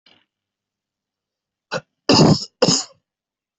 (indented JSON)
{
  "expert_labels": [
    {
      "quality": "good",
      "cough_type": "wet",
      "dyspnea": false,
      "wheezing": false,
      "stridor": false,
      "choking": false,
      "congestion": false,
      "nothing": true,
      "diagnosis": "lower respiratory tract infection",
      "severity": "mild"
    }
  ],
  "age": 32,
  "gender": "male",
  "respiratory_condition": false,
  "fever_muscle_pain": false,
  "status": "healthy"
}